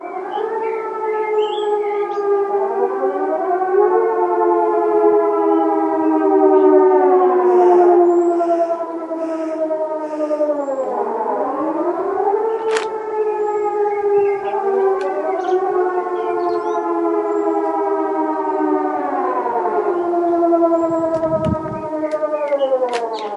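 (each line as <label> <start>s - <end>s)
Two distant birds chirp alternately with steady volume. 0.0s - 2.6s
A siren is sounding from a distance. 0.0s - 7.3s
Two distant sirens join, both increasing in pitch. 3.2s - 7.2s
A siren fades into the distance. 7.4s - 11.3s
A siren sounds repeatedly with increasing pitch and volume. 11.4s - 20.5s
A book page is turned nearby. 12.6s - 12.9s
Two birds chirp in the distance with alternating calls at a steady volume. 13.0s - 17.3s
Two distant sirens slowly stop. 20.6s - 23.3s
Two birds chirp in the distance with alternating calls at a steady volume. 21.5s - 23.3s
A book page is turned nearby. 22.9s - 23.2s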